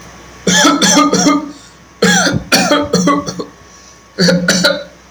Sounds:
Cough